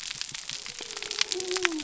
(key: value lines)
label: biophony
recorder: SoundTrap 300